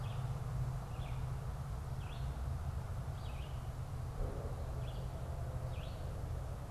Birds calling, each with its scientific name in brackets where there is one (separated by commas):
Red-eyed Vireo (Vireo olivaceus)